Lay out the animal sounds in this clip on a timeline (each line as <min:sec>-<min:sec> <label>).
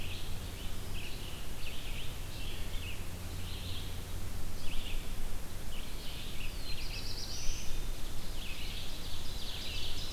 0:00.0-0:10.1 Red-eyed Vireo (Vireo olivaceus)
0:06.4-0:07.8 Black-throated Blue Warbler (Setophaga caerulescens)
0:08.1-0:10.1 Ovenbird (Seiurus aurocapilla)